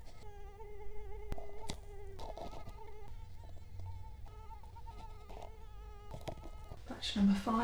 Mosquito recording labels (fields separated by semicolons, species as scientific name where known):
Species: Culex quinquefasciatus; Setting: cup